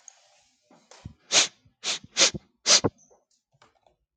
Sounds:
Sniff